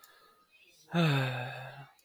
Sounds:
Sigh